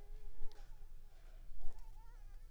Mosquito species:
Anopheles arabiensis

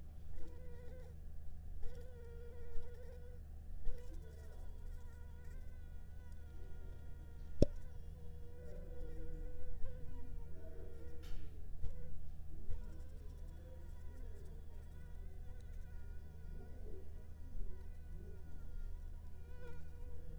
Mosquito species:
Anopheles arabiensis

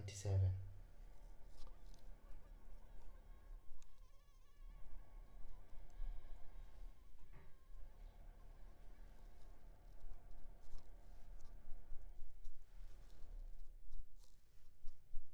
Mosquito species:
Culex pipiens complex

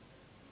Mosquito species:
Anopheles gambiae s.s.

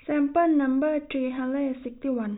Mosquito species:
no mosquito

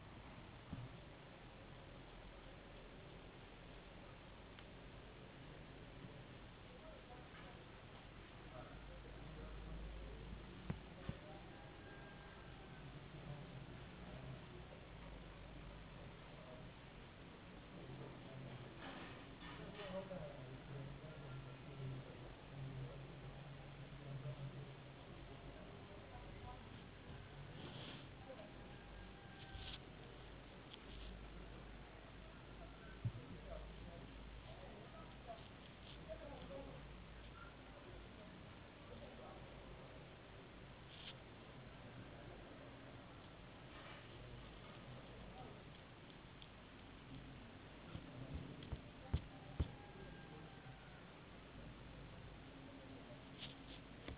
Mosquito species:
no mosquito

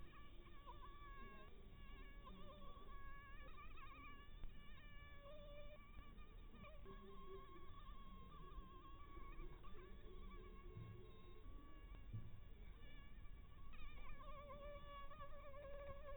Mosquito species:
Anopheles harrisoni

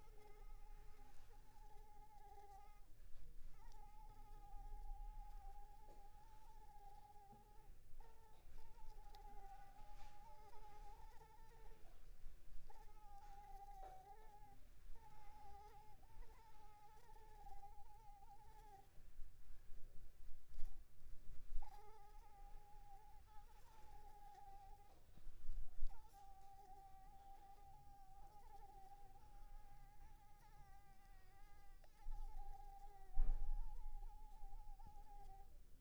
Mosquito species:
Anopheles arabiensis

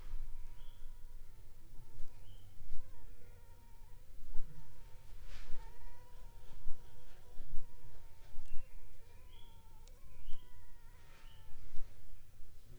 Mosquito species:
Anopheles funestus s.s.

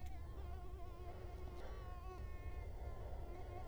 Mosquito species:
Culex quinquefasciatus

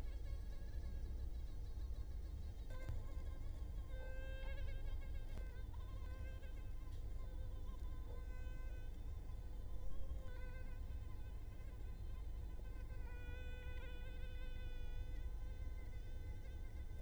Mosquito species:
Culex quinquefasciatus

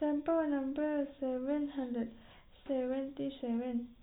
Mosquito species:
no mosquito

